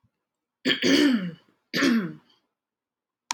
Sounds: Throat clearing